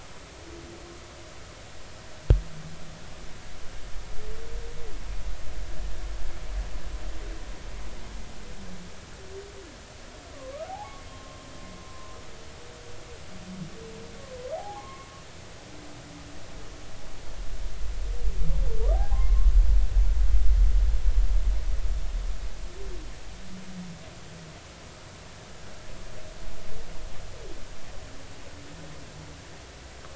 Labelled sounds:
10.3	11.5	humpback whale, 0.80 to 1.3 kHz
11.9	12.2	humpback whale, 0.99 to 1.1 kHz
14.5	15.1	humpback whale, 0.80 to 1.2 kHz
18.9	19.2	humpback whale, 0.80 to 0.86 kHz

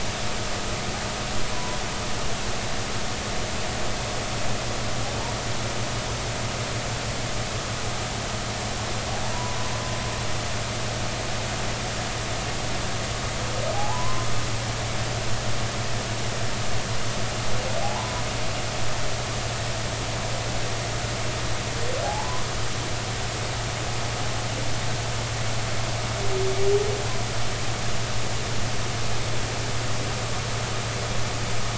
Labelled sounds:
1.5	1.8	humpback whale, 0.93 to 1.1 kHz
9.3	9.6	humpback whale, 0.93 to 1.0 kHz
13.7	14.3	humpback whale, 0.80 to 1.1 kHz
17.8	18.2	humpback whale, 0.80 to 1.1 kHz
22.0	22.4	humpback whale, 0.80 to 1.2 kHz

